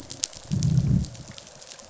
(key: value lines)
label: biophony, growl
recorder: SoundTrap 500